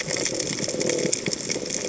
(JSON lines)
{"label": "biophony", "recorder": "HydroMoth"}